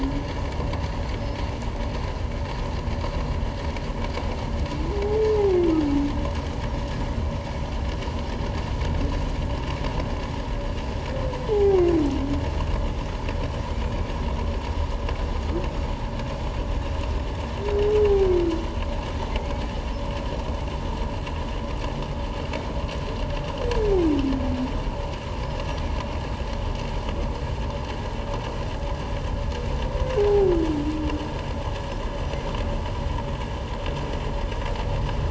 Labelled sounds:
11.5	11.8	humpback whale, 0.78 to 0.88 kHz
13.7	14.0	humpback whale, 2.2 to 2.5 kHz
30.2	30.5	humpback whale, 0.78 to 0.84 kHz

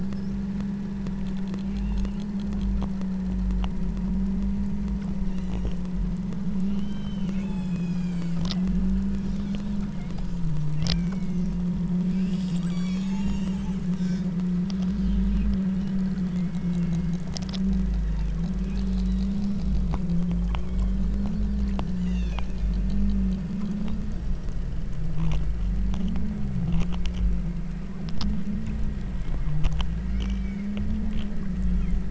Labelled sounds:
1.7	2.2	killer whale, southern Alaska resident, 2.3 to 3.9 kHz
5.2	5.9	killer whale, southern Alaska resident, 1.6 to 8.0 kHz
6.7	10.5	killer whale, southern Alaska resident, 1.8 to 8.0 kHz
11.0	11.5	killer whale, southern Alaska resident, 1.3 to 6.9 kHz
12.2	13.8	killer whale, southern Alaska resident, 0.71 to 8.0 kHz
16.3	17.3	killer whale, southern Alaska resident, 1.7 to 2.4 kHz
18.6	19.3	killer whale, southern Alaska resident, 2.3 to 4.4 kHz
20.7	21.2	killer whale, southern Alaska resident, 1.9 to 3.5 kHz
22.0	22.5	killer whale, southern Alaska resident, 1.3 to 7.4 kHz
30.1	30.8	killer whale, southern Alaska resident, 2.0 to 6.2 kHz
31.6	32.1	killer whale, southern Alaska resident, 1.0 to 3.6 kHz

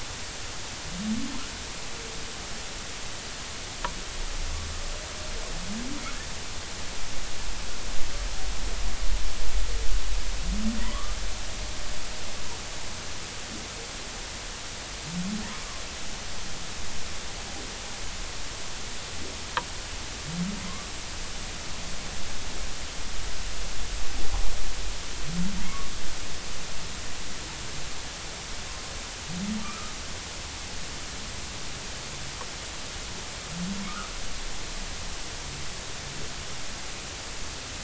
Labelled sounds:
10.8	11.1	humpback whale, 0.93 to 1.3 kHz
29.6	29.9	humpback whale, 1.1 to 1.4 kHz

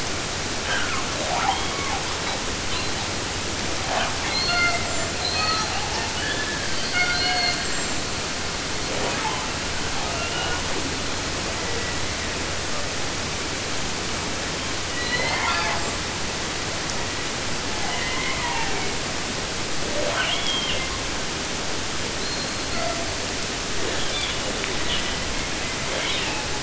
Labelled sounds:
0.5	2.0	killer whale, southern resident, 0.22 to 8.0 kHz
2.1	3.1	killer whale, 0.42 to 4.9 kHz
3.8	4.1	killer whale, 0.24 to 4.5 kHz
4.2	6.1	killer whale, southern resident, J pod, call S42, 0.49 to 8.0 kHz
6.1	6.7	killer whale, 1.1 to 3.7 kHz
6.9	8.1	killer whale, southern resident, J pod, call S42, 0.50 to 8.0 kHz
8.8	11.0	killer whale, 0.10 to 4.6 kHz
11.4	13.0	killer whale, 0.22 to 2.7 kHz
14.8	16.0	killer whale, southern resident, J pod, call S01, 0.19 to 8.0 kHz
17.6	19.1	killer whale, 0.18 to 5.5 kHz
19.8	21.1	killer whale, southern resident, J pod, call S44, 0.15 to 4.5 kHz
22.2	23.4	killer whale, southern resident, J pod, call S42, 0.30 to 4.9 kHz
23.7	26.6	killer whale, 0.14 to 5.4 kHz

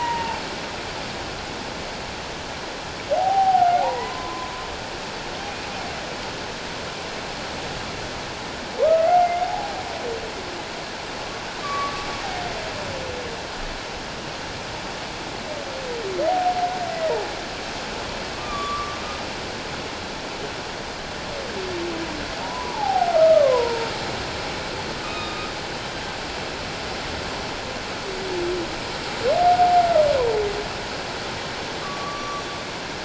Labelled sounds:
3.1	4.5	humpback whale, 0.78 to 1.5 kHz
8.8	9.7	humpback whale, 0.78 to 2.2 kHz
11.6	12.0	humpback whale, 1.0 to 1.2 kHz
18.3	19.0	humpback whale, 1.1 to 1.2 kHz
22.4	23.9	humpback whale, 0.78 to 1.3 kHz
25.0	25.5	humpback whale, 1.2 to 3.8 kHz
29.4	29.9	humpback whale, 0.78 to 0.81 kHz
31.8	32.5	humpback whale, 1.1 to 6.0 kHz

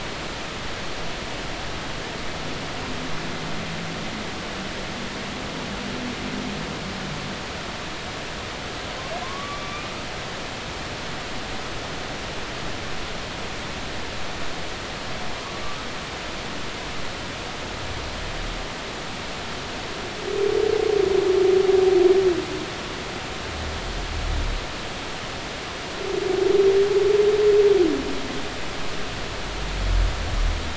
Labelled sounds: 9.2	9.9	humpback whale, 0.99 to 2.3 kHz

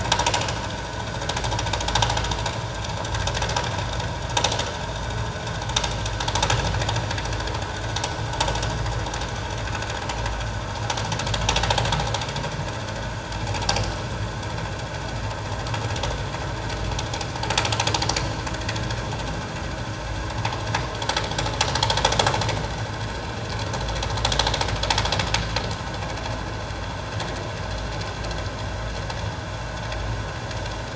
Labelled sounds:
0.3	0.5	vessel noise, 2.8 to 2.9 kHz

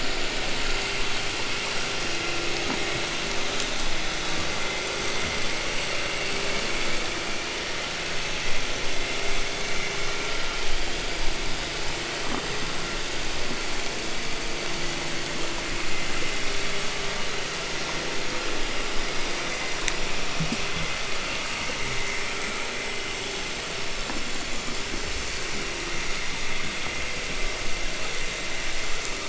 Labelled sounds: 4.9	6.3	vessel noise, 1.7 to 3.5 kHz

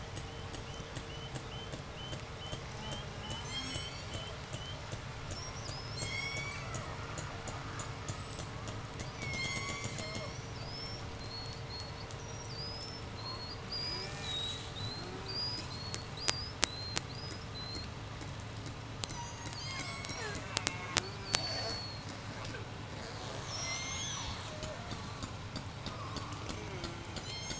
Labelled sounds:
0.0	5.0	killer whale, 2.5 to 3.6 kHz
2.7	4.3	killer whale, J pod, 0.51 to 8.0 kHz
5.4	7.0	killer whale, J pod, 0.77 to 8.0 kHz
6.1	10.4	killer whale, 0.25 to 1.5 kHz
8.7	10.5	killer whale, J pod, call S03, 1.7 to 8.0 kHz
10.5	18.1	killer whale, J pod, 3.6 to 8.0 kHz
13.7	14.4	killer whale, J pod, call S04, 0.15 to 3.4 kHz
14.9	15.5	killer whale, J pod, call S04, 0.13 to 3.0 kHz
19.1	22.0	killer whale, J pod, 0.18 to 8.0 kHz
22.8	27.2	killer whale, J pod, 0.36 to 8.0 kHz
27.2	27.5	killer whale, J pod, call S03, 0.43 to 8.0 kHz

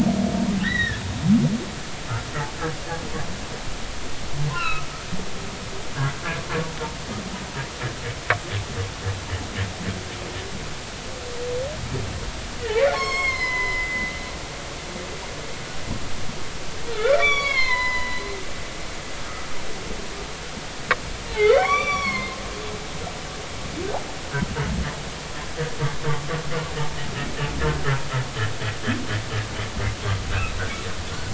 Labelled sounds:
4.5	4.9	humpback whale, 1.2 to 2.9 kHz
12.6	14.1	humpback whale, 0.93 to 7.7 kHz
16.9	18.2	humpback whale, 0.93 to 6.9 kHz
19.2	19.5	humpback whale, 1.2 to 1.4 kHz
21.3	22.4	humpback whale, 0.99 to 5.9 kHz

